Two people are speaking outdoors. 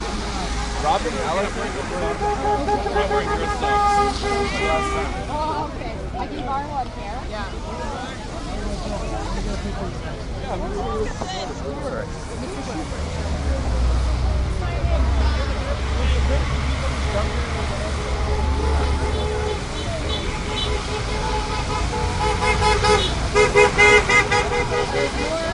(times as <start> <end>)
5.3 8.1